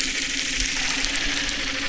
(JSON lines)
{"label": "anthrophony, boat engine", "recorder": "SoundTrap 300"}